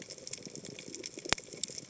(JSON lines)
{"label": "biophony, chatter", "recorder": "HydroMoth"}